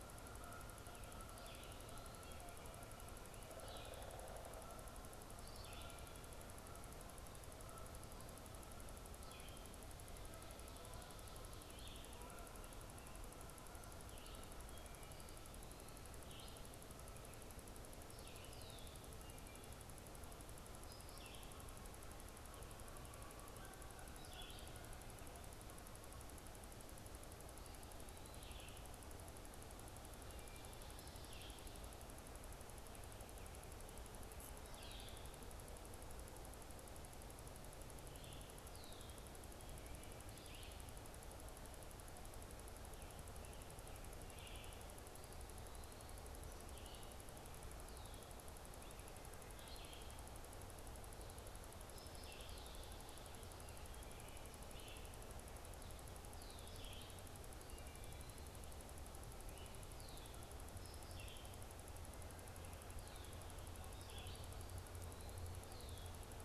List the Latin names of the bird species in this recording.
Branta canadensis, Vireo olivaceus, Dryocopus pileatus, Agelaius phoeniceus